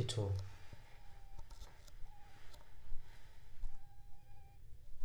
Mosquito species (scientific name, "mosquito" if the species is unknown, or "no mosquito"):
Aedes aegypti